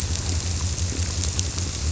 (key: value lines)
label: biophony
recorder: SoundTrap 300